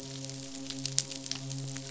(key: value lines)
label: biophony, midshipman
recorder: SoundTrap 500